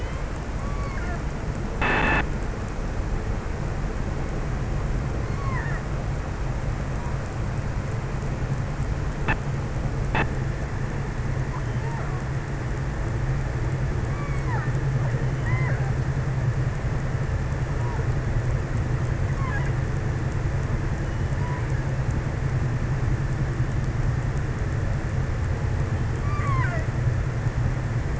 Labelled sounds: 4.9	6.4	killer whale, offshore, 0.65 to 2.7 kHz
13.8	16.3	killer whale, offshore, 0.08 to 2.7 kHz
18.8	20.3	killer whale, offshore, 0.47 to 2.5 kHz
21.0	22.2	killer whale, offshore, 0.51 to 2.8 kHz
25.5	27.2	killer whale, offshore, 0.51 to 2.8 kHz

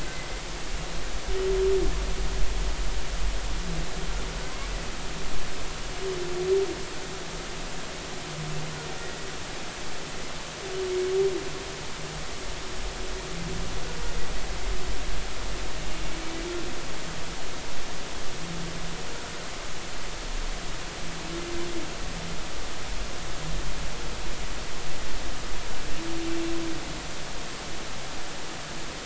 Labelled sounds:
0.0	0.3	humpback whale, 2.0 to 2.1 kHz

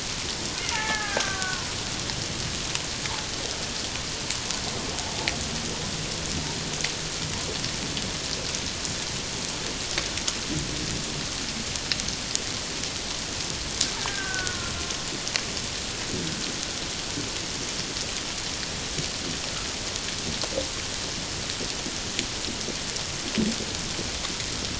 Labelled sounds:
0.7	1.8	killer whale, Bigg's (transient), 0.78 to 2.2 kHz
14.0	14.7	killer whale, Bigg's (transient), 1.1 to 1.8 kHz

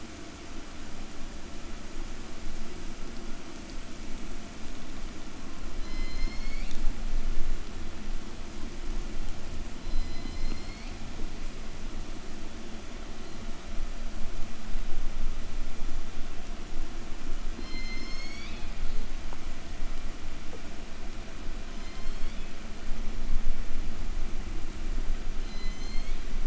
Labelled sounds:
5.0	7.8	killer whale, southern resident, call S01, 1.5 to 6.8 kHz
9.3	11.7	killer whale, southern resident, call S01, 0.73 to 6.4 kHz
17.4	19.2	killer whale, southern resident, call S01, 1.7 to 8.0 kHz
21.3	23.0	killer whale, southern resident, call S01, 0.78 to 8.0 kHz
25.2	26.3	killer whale, southern resident, call S01, 1.7 to 8.0 kHz

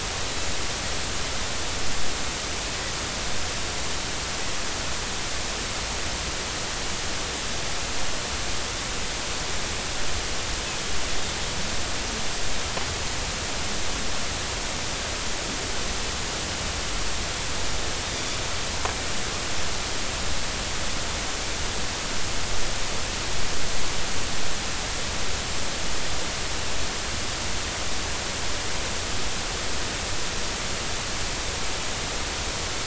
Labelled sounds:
18.0	18.4	Pacific white-sided dolphin, 3.4 to 3.8 kHz

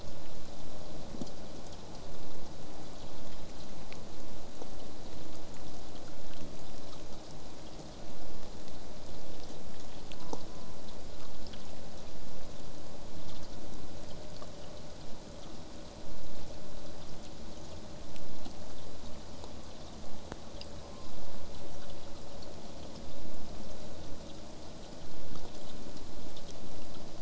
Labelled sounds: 10.2	10.8	killer whale, southern resident, J pod, call S04, 0.66 to 1.2 kHz
20.8	21.2	killer whale, southern resident, J pod, call S04, 0.81 to 1.2 kHz

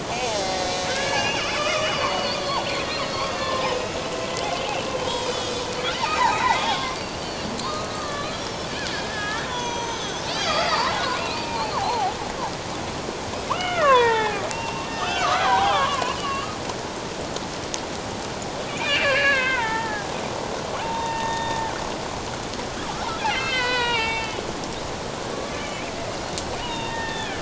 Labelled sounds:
0.3	4.0	killer whale, Bigg's (transient), 0.78 to 5.3 kHz
5.0	8.5	killer whale, Bigg's (transient), 0.78 to 5.3 kHz
8.9	12.1	killer whale, Bigg's (transient), 0.78 to 6.3 kHz
13.5	16.6	killer whale, Bigg's (transient), 0.78 to 6.4 kHz
18.7	20.1	killer whale, Bigg's (transient), 0.78 to 4.0 kHz
20.8	21.6	killer whale, Bigg's (transient), 0.78 to 3.8 kHz
23.3	24.4	killer whale, Bigg's (transient), 0.81 to 5.2 kHz
25.3	25.9	killer whale, Bigg's (transient), 1.1 to 3.1 kHz
26.6	27.4	killer whale, Bigg's (transient), 0.84 to 3.8 kHz

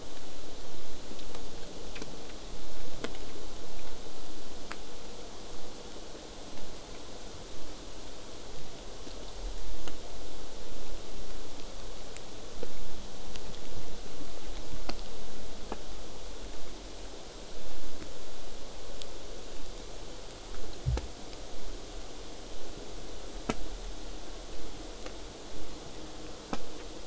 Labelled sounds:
19.5	24.5	vessel noise, 0.08 to 8.0 kHz

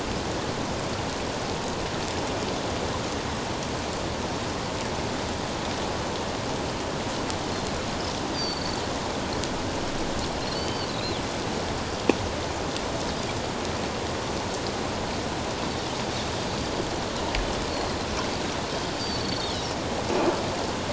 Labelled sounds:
8.3	8.8	Pacific white-sided dolphin, 4.3 to 4.9 kHz
10.5	11.2	Pacific white-sided dolphin, 2.9 to 4.7 kHz
18.7	19.6	Pacific white-sided dolphin, 4.2 to 7.1 kHz

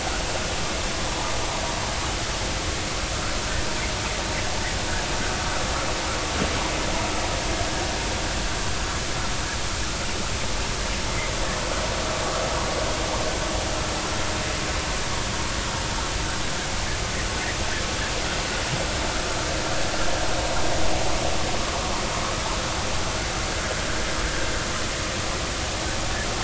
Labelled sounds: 1.1	1.3	vessel noise, 0.83 to 1.1 kHz

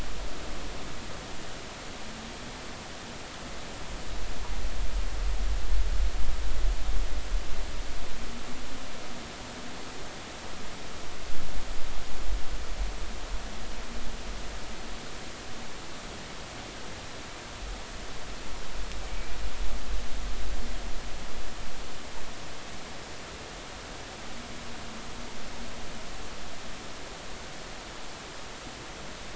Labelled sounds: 19.1	19.4	humpback whale, 2.2 to 2.4 kHz

